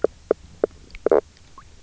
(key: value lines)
label: biophony, knock croak
recorder: SoundTrap 300